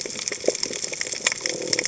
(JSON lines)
{"label": "biophony", "recorder": "HydroMoth"}